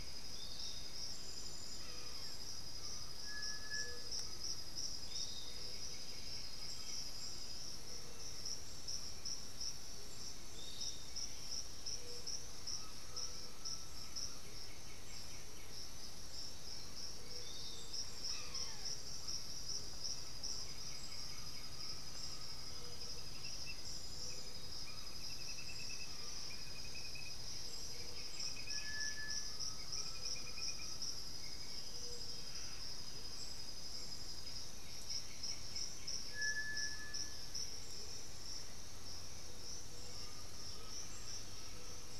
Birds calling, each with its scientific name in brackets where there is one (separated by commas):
unidentified bird, White-winged Becard (Pachyramphus polychopterus), Black-billed Thrush (Turdus ignobilis), Amazonian Motmot (Momotus momota), Black Caracara (Daptrius ater), Piratic Flycatcher (Legatus leucophaius), Undulated Tinamou (Crypturellus undulatus), Great Antshrike (Taraba major)